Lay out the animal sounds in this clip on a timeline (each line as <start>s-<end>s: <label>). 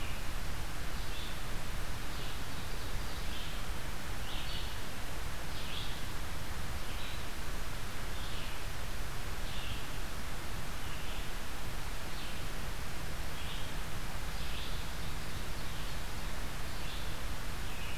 0.0s-18.0s: Red-eyed Vireo (Vireo olivaceus)
14.8s-16.6s: Ovenbird (Seiurus aurocapilla)